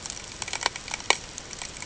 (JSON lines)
{"label": "ambient", "recorder": "HydroMoth"}